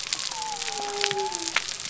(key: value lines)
label: biophony
recorder: SoundTrap 300